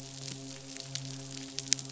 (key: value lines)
label: biophony, midshipman
recorder: SoundTrap 500